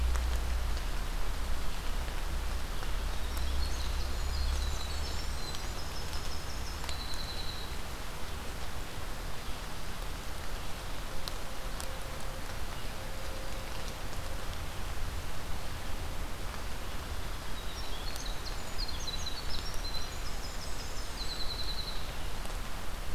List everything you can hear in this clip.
Winter Wren, Blackburnian Warbler